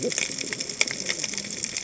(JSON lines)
{"label": "biophony, cascading saw", "recorder": "HydroMoth"}